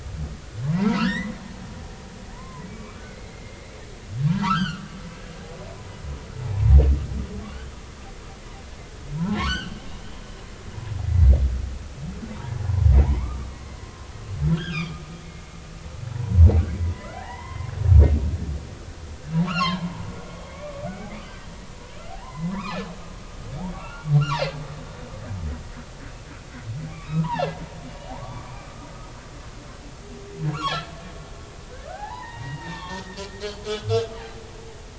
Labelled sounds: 0.7	1.3	humpback whale, 1.2 to 2.1 kHz
2.3	4.9	humpback whale, 0.83 to 5.0 kHz
6.3	6.7	humpback whale, 0.80 to 1.0 kHz
7.5	7.7	humpback whale, 2.7 to 3.2 kHz
9.4	9.8	humpback whale, 0.90 to 4.9 kHz
11.0	11.3	humpback whale, 1.9 to 2.0 kHz
13.0	13.5	humpback whale, 0.80 to 1.3 kHz
14.5	15.0	humpback whale, 1.1 to 5.3 kHz
16.1	17.7	humpback whale, 0.80 to 2.2 kHz
19.3	20.0	humpback whale, 0.80 to 5.7 kHz
20.3	20.8	humpback whale, 1.1 to 3.3 kHz
22.1	22.9	humpback whale, 0.80 to 2.7 kHz
23.7	24.5	humpback whale, 1.3 to 7.4 kHz
26.9	27.5	humpback whale, 0.80 to 2.9 kHz
28.2	28.6	humpback whale, 0.90 to 1.9 kHz
31.9	33.0	humpback whale, 0.80 to 3.7 kHz
33.7	33.9	humpback whale, 1.4 to 1.5 kHz

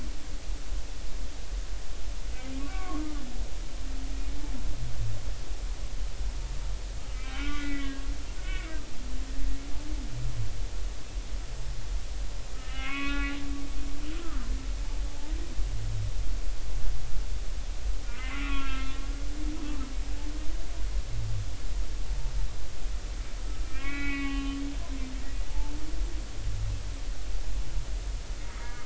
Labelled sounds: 2.6	3.2	humpback whale, 1.0 to 1.6 kHz
7.2	8.7	humpback whale, 1.2 to 2.4 kHz
12.5	13.4	humpback whale, 1.0 to 3.7 kHz
14.2	15.3	humpback whale, 0.80 to 1.6 kHz
18.1	19.0	humpback whale, 1.0 to 3.4 kHz
23.6	24.6	humpback whale, 1.1 to 3.1 kHz
25.5	25.7	humpback whale, 0.83 to 0.96 kHz
28.6	28.8	humpback whale, 2.1 to 2.2 kHz

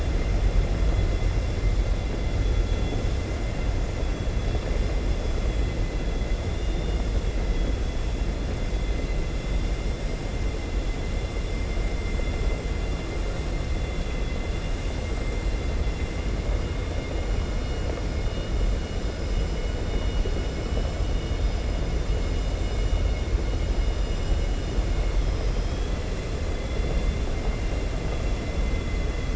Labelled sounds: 6.4	7.1	vessel noise, 2.1 to 3.6 kHz
26.6	27.8	vessel noise, 2.1 to 4.2 kHz

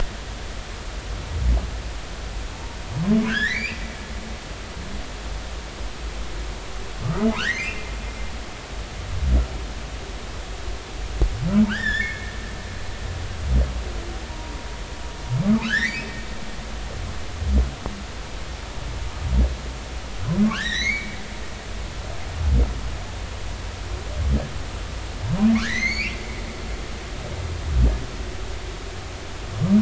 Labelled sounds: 3.3	3.8	humpback whale, 1.3 to 5.0 kHz
7.0	7.9	humpback whale, 1.1 to 3.2 kHz
11.7	12.3	humpback whale, 1.2 to 5.6 kHz
14.3	14.5	humpback whale, 0.90 to 0.99 kHz
15.6	16.1	humpback whale, 1.2 to 4.2 kHz
20.5	21.2	humpback whale, 1.3 to 6.0 kHz
25.5	26.2	humpback whale, 1.0 to 7.0 kHz

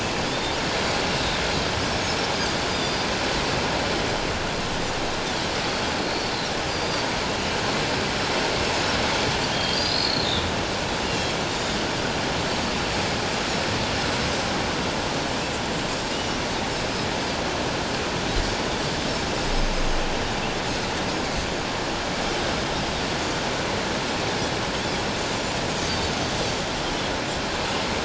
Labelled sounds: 0.2	0.6	Pacific white-sided dolphin, 3.3 to 3.7 kHz
1.9	2.2	Pacific white-sided dolphin, 7.8 to 8.0 kHz
2.7	3.0	Pacific white-sided dolphin, 4.6 to 5.0 kHz
6.7	7.0	Pacific white-sided dolphin, 4.5 to 4.9 kHz
9.5	10.2	Pacific white-sided dolphin, 3.2 to 5.0 kHz
11.0	11.8	Pacific white-sided dolphin, 2.7 to 5.6 kHz
19.8	20.1	Pacific white-sided dolphin, 6.2 to 6.5 kHz
25.8	26.1	Pacific white-sided dolphin, 4.3 to 4.8 kHz

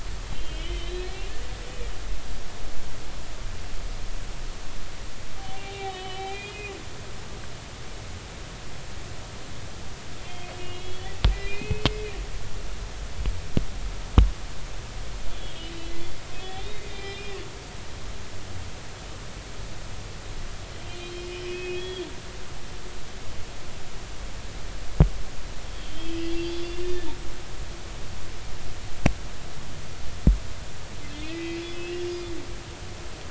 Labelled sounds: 0.3	1.1	humpback whale, 2.0 to 4.2 kHz
5.4	6.7	humpback whale, 0.80 to 3.8 kHz
10.2	11.9	humpback whale, 2.0 to 3.5 kHz
15.3	17.4	humpback whale, 1.8 to 3.8 kHz
17.9	18.4	humpback whale, 2.3 to 4.1 kHz
21.0	22.1	humpback whale, 2.5 to 3.5 kHz
25.8	27.1	humpback whale, 1.7 to 4.9 kHz
31.3	31.6	humpback whale, 1.9 to 2.4 kHz
32.0	32.3	humpback whale, 4.8 to 5.0 kHz

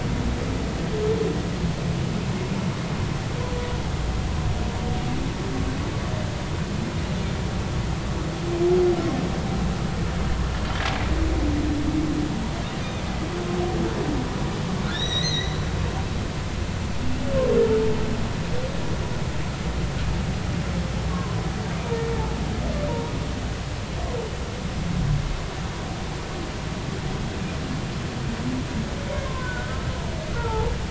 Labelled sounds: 12.8	13.0	humpback whale, 3.4 to 3.8 kHz
14.8	15.6	humpback whale, 1.2 to 6.4 kHz
21.1	21.4	humpback whale, 0.99 to 1.2 kHz
29.2	29.9	humpback whale, 0.96 to 1.6 kHz
30.3	30.7	humpback whale, 0.80 to 1.5 kHz

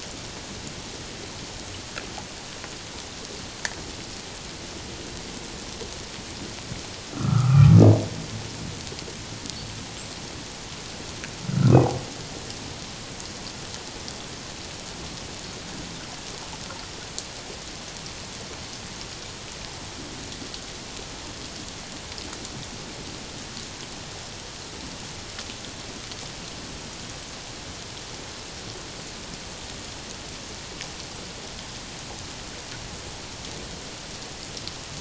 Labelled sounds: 7.1	7.7	humpback whale, 1.1 to 1.5 kHz
11.5	11.7	humpback whale, 1.3 to 1.6 kHz

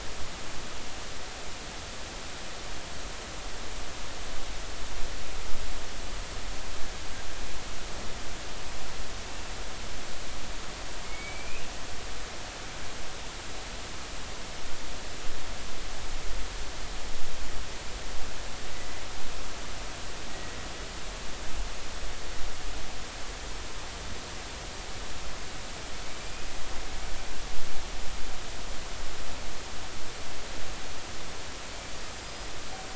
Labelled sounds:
11.0	11.6	killer whale, Bigg's (transient), 2.1 to 2.6 kHz
20.3	20.6	killer whale, Bigg's (transient), 1.9 to 2.0 kHz
26.2	26.5	killer whale, Bigg's (transient), 2.3 to 2.6 kHz
32.2	32.5	killer whale, Bigg's (transient), 4.8 to 5.1 kHz

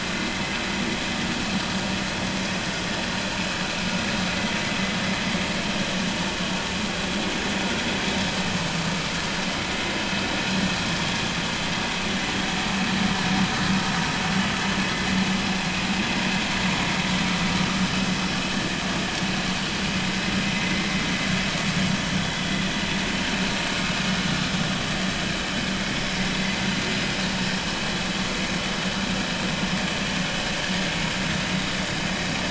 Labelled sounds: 20.7	20.9	vessel noise, 2.0 to 2.2 kHz
25.9	26.7	vessel noise, 2.0 to 5.1 kHz

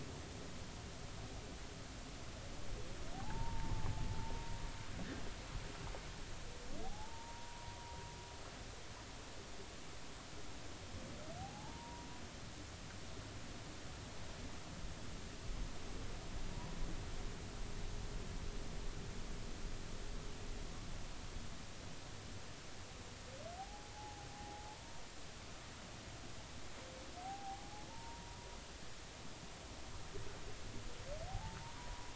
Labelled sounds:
3.1	4.6	humpback whale, 0.80 to 1.1 kHz
6.8	8.0	humpback whale, 0.80 to 1.1 kHz
11.4	12.1	humpback whale, 0.80 to 1.0 kHz
23.6	25.0	humpback whale, 0.80 to 0.96 kHz
27.2	27.6	humpback whale, 0.80 to 0.86 kHz
27.9	28.4	humpback whale, 0.86 to 0.99 kHz
31.3	32.1	humpback whale, 0.80 to 1.0 kHz

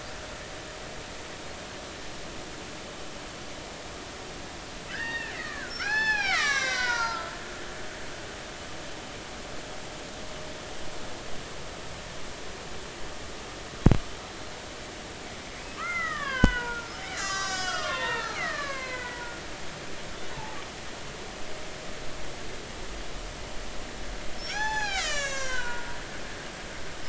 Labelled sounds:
4.9	7.4	killer whale, Bigg's (transient), 0.80 to 7.0 kHz
15.6	19.3	killer whale, Bigg's (transient), 0.80 to 7.8 kHz
20.1	20.6	killer whale, Bigg's (transient), 0.80 to 3.9 kHz
24.4	25.9	killer whale, Bigg's (transient), 0.80 to 8.0 kHz

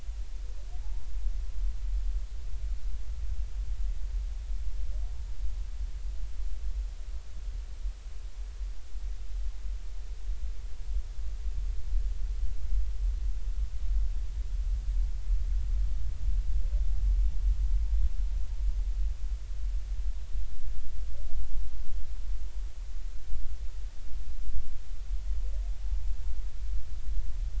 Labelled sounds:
0.8	1.1	vessel noise, 0.80 to 0.99 kHz
25.8	26.1	vessel noise, 0.83 to 0.93 kHz

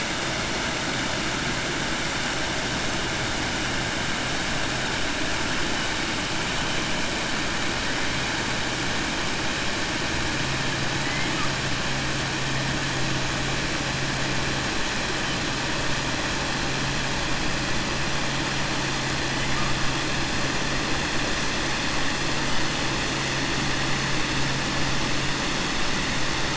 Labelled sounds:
11.0	11.5	killer whale, 1.1 to 3.0 kHz

